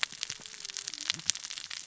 {"label": "biophony, cascading saw", "recorder": "SoundTrap 600 or HydroMoth"}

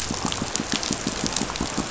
{"label": "biophony, pulse", "recorder": "SoundTrap 500"}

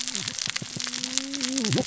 {"label": "biophony, cascading saw", "recorder": "SoundTrap 600 or HydroMoth"}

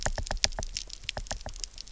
{"label": "biophony, knock", "recorder": "SoundTrap 300"}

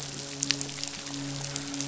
{"label": "biophony, midshipman", "recorder": "SoundTrap 500"}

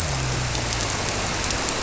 {"label": "biophony", "recorder": "SoundTrap 300"}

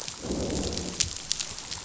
{"label": "biophony, growl", "recorder": "SoundTrap 500"}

